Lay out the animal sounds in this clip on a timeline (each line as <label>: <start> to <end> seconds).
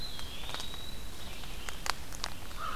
Eastern Wood-Pewee (Contopus virens): 0.0 to 1.4 seconds
Red-eyed Vireo (Vireo olivaceus): 0.0 to 2.8 seconds